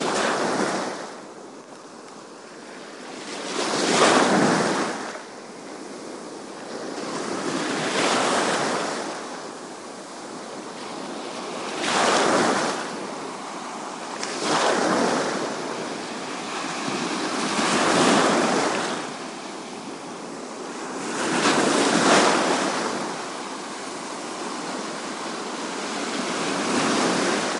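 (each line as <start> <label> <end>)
0.1 Waves are continuously crashing. 27.6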